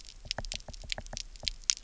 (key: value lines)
label: biophony, knock
recorder: SoundTrap 300